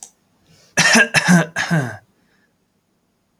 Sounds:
Cough